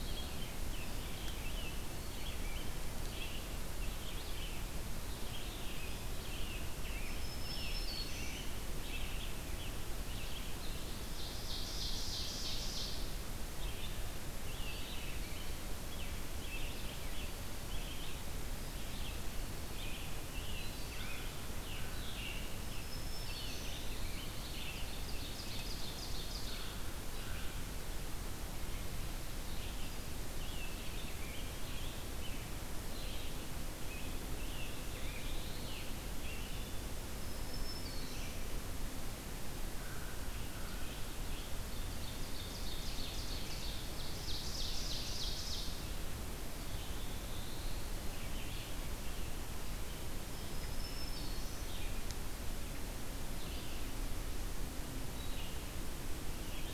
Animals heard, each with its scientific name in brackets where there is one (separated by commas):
Rose-breasted Grosbeak (Pheucticus ludovicianus), American Crow (Corvus brachyrhynchos), Black-throated Green Warbler (Setophaga virens), Black-throated Blue Warbler (Setophaga caerulescens), Ovenbird (Seiurus aurocapilla), Scarlet Tanager (Piranga olivacea), Red-eyed Vireo (Vireo olivaceus)